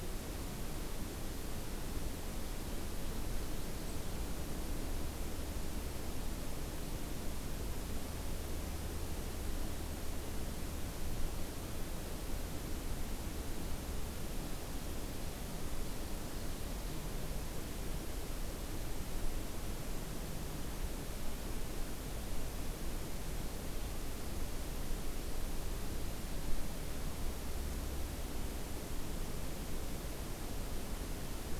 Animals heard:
forest ambience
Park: Acadia National Park